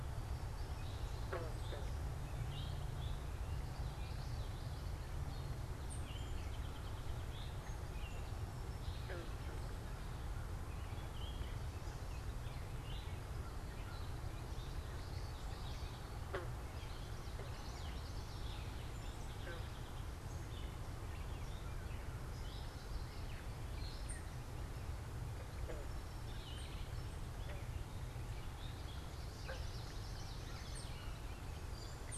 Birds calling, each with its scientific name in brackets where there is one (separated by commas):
Eastern Towhee (Pipilo erythrophthalmus), Gray Catbird (Dumetella carolinensis), Song Sparrow (Melospiza melodia), unidentified bird, American Crow (Corvus brachyrhynchos), Common Yellowthroat (Geothlypis trichas)